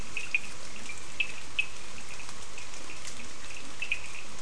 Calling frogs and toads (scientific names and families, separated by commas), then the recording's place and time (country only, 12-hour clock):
Sphaenorhynchus surdus (Hylidae)
Brazil, 4:30am